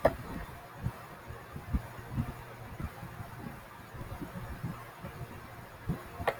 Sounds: Cough